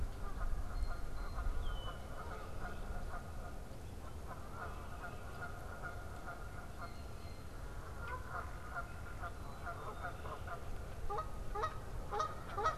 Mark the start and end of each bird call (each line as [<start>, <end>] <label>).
[0.00, 1.54] Blue Jay (Cyanocitta cristata)
[0.00, 12.77] Canada Goose (Branta canadensis)
[1.44, 2.24] Red-winged Blackbird (Agelaius phoeniceus)
[6.64, 9.44] Blue Jay (Cyanocitta cristata)